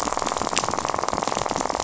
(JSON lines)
{"label": "biophony, rattle", "recorder": "SoundTrap 500"}